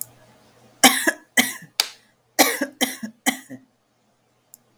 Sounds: Cough